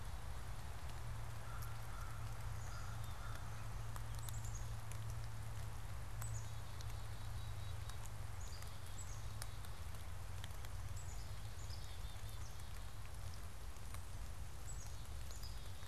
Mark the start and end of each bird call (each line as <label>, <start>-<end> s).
American Crow (Corvus brachyrhynchos), 1.3-3.6 s
Black-capped Chickadee (Poecile atricapillus), 4.1-15.8 s